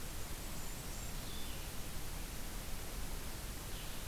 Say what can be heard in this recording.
Blackburnian Warbler, Blue-headed Vireo